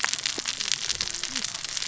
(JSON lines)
{"label": "biophony, cascading saw", "recorder": "SoundTrap 600 or HydroMoth"}